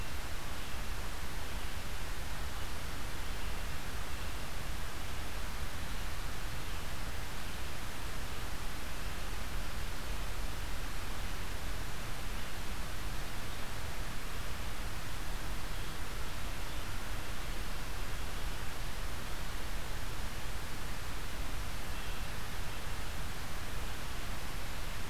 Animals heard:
forest ambience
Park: Marsh-Billings-Rockefeller National Historical Park